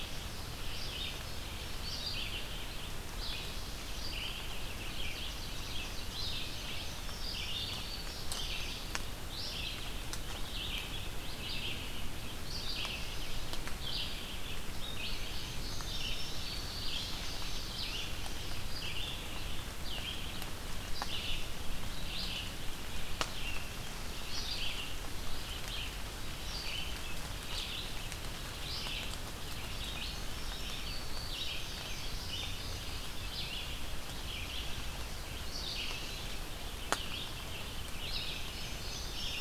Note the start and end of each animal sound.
[0.00, 1.22] Indigo Bunting (Passerina cyanea)
[0.00, 39.41] Red-eyed Vireo (Vireo olivaceus)
[4.75, 6.53] Ovenbird (Seiurus aurocapilla)
[6.31, 9.01] Indigo Bunting (Passerina cyanea)
[15.11, 18.68] Indigo Bunting (Passerina cyanea)
[29.80, 33.28] Indigo Bunting (Passerina cyanea)
[37.78, 39.41] Indigo Bunting (Passerina cyanea)

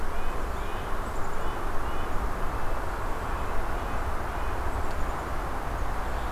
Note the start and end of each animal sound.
[0.00, 4.61] Red-breasted Nuthatch (Sitta canadensis)
[0.00, 5.00] Red-eyed Vireo (Vireo olivaceus)
[0.79, 1.66] Black-capped Chickadee (Poecile atricapillus)
[4.48, 5.45] Black-capped Chickadee (Poecile atricapillus)

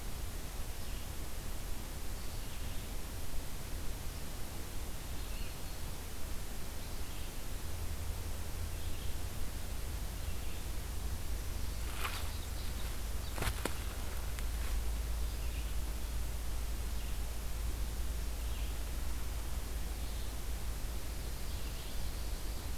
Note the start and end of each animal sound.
[0.00, 20.69] Red-eyed Vireo (Vireo olivaceus)
[21.00, 22.69] Ovenbird (Seiurus aurocapilla)

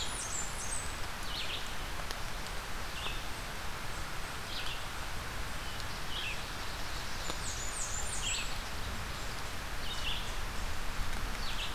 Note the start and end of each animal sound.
[0.00, 0.99] Blackburnian Warbler (Setophaga fusca)
[0.00, 11.74] Red-eyed Vireo (Vireo olivaceus)
[2.42, 4.56] unidentified call
[7.00, 8.53] Blackburnian Warbler (Setophaga fusca)

